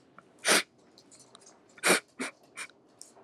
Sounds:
Sniff